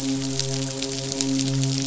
{"label": "biophony, midshipman", "recorder": "SoundTrap 500"}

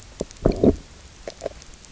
{"label": "biophony, low growl", "recorder": "SoundTrap 300"}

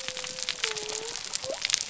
{"label": "biophony", "recorder": "SoundTrap 300"}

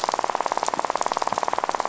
{"label": "biophony, rattle", "recorder": "SoundTrap 500"}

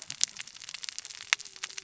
{"label": "biophony, cascading saw", "recorder": "SoundTrap 600 or HydroMoth"}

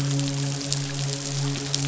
{"label": "biophony, midshipman", "recorder": "SoundTrap 500"}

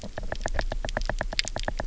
{"label": "biophony, knock", "recorder": "SoundTrap 300"}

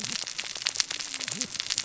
{"label": "biophony, cascading saw", "recorder": "SoundTrap 600 or HydroMoth"}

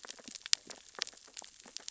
{"label": "biophony, sea urchins (Echinidae)", "recorder": "SoundTrap 600 or HydroMoth"}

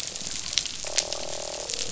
{"label": "biophony, croak", "recorder": "SoundTrap 500"}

